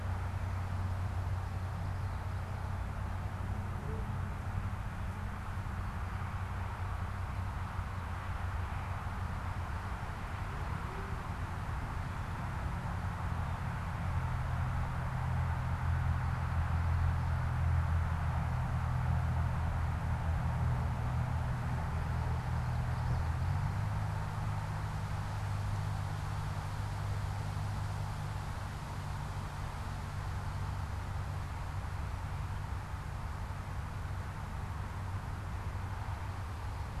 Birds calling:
Common Yellowthroat (Geothlypis trichas)

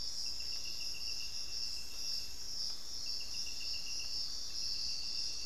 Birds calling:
Thrush-like Wren (Campylorhynchus turdinus)

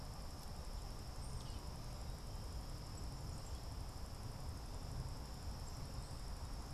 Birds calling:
Tufted Titmouse (Baeolophus bicolor)

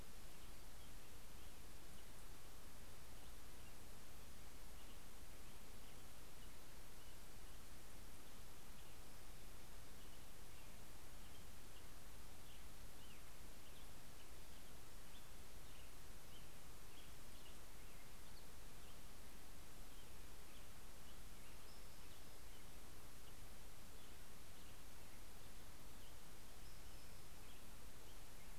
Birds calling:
Spotted Towhee (Pipilo maculatus)
American Robin (Turdus migratorius)

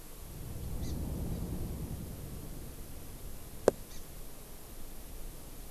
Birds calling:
Hawaii Amakihi (Chlorodrepanis virens)

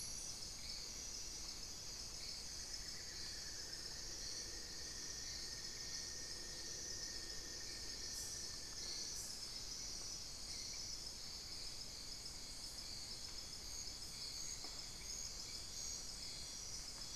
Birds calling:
Cinnamon-throated Woodcreeper (Dendrexetastes rufigula)
Amazonian Barred-Woodcreeper (Dendrocolaptes certhia)

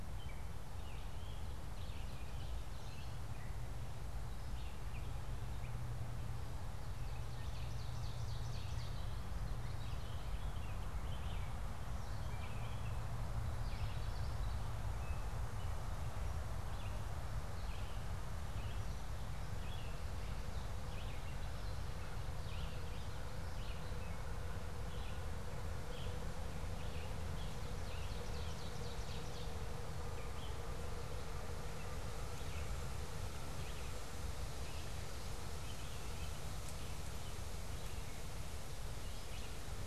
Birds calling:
Common Yellowthroat (Geothlypis trichas)
Gray Catbird (Dumetella carolinensis)
Ovenbird (Seiurus aurocapilla)
Red-eyed Vireo (Vireo olivaceus)

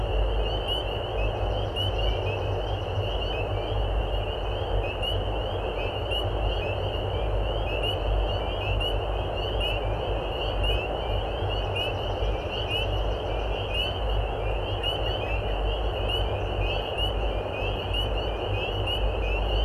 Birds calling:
Swamp Sparrow (Melospiza georgiana)

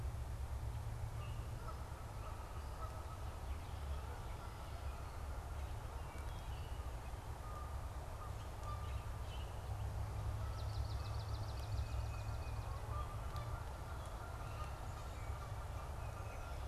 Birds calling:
Wood Thrush (Hylocichla mustelina)
Tufted Titmouse (Baeolophus bicolor)
Canada Goose (Branta canadensis)
Common Grackle (Quiscalus quiscula)
Swamp Sparrow (Melospiza georgiana)

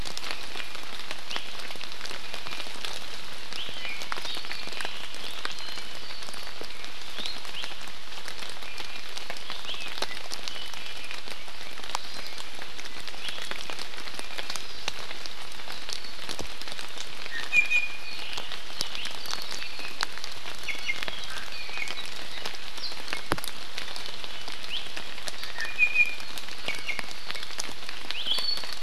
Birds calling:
Apapane (Himatione sanguinea)
Iiwi (Drepanis coccinea)

